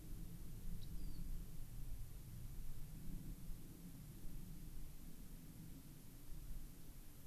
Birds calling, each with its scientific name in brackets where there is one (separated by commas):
Rock Wren (Salpinctes obsoletus)